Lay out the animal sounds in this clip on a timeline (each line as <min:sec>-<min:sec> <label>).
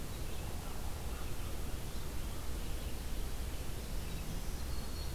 0:00.0-0:05.1 Red-eyed Vireo (Vireo olivaceus)
0:00.7-0:01.9 American Crow (Corvus brachyrhynchos)
0:03.8-0:05.1 Winter Wren (Troglodytes hiemalis)
0:03.8-0:05.1 Black-throated Green Warbler (Setophaga virens)